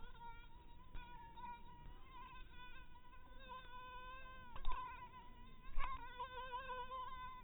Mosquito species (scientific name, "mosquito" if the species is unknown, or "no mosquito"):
mosquito